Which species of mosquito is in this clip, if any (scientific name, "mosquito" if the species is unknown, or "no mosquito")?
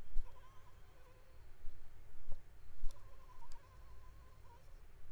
Anopheles arabiensis